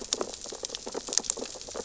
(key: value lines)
label: biophony, sea urchins (Echinidae)
recorder: SoundTrap 600 or HydroMoth